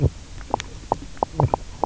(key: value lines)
label: biophony, knock croak
recorder: SoundTrap 300